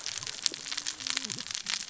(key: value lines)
label: biophony, cascading saw
recorder: SoundTrap 600 or HydroMoth